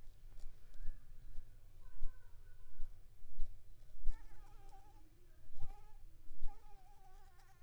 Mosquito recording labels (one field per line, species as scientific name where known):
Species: Anopheles gambiae s.l.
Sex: female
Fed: unfed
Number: one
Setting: cup